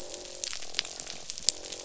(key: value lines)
label: biophony, croak
recorder: SoundTrap 500